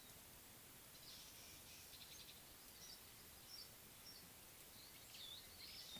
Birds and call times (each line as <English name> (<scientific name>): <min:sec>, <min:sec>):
Meyer's Parrot (Poicephalus meyeri): 0:03.7